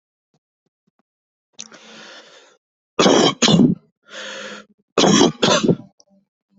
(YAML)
expert_labels:
- quality: ok
  cough_type: wet
  dyspnea: false
  wheezing: false
  stridor: false
  choking: false
  congestion: false
  nothing: true
  diagnosis: lower respiratory tract infection
  severity: mild
age: 37
gender: male
respiratory_condition: false
fever_muscle_pain: false
status: healthy